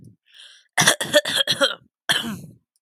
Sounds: Cough